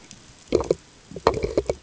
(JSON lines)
{"label": "ambient", "recorder": "HydroMoth"}